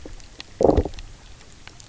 {"label": "biophony, low growl", "recorder": "SoundTrap 300"}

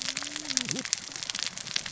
{"label": "biophony, cascading saw", "recorder": "SoundTrap 600 or HydroMoth"}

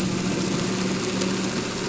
{"label": "anthrophony, boat engine", "recorder": "SoundTrap 300"}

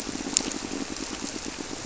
{"label": "biophony, squirrelfish (Holocentrus)", "recorder": "SoundTrap 300"}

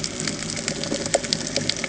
{"label": "ambient", "recorder": "HydroMoth"}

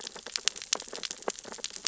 {"label": "biophony, sea urchins (Echinidae)", "recorder": "SoundTrap 600 or HydroMoth"}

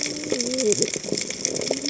{"label": "biophony, cascading saw", "recorder": "HydroMoth"}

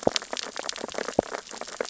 {"label": "biophony, sea urchins (Echinidae)", "recorder": "SoundTrap 600 or HydroMoth"}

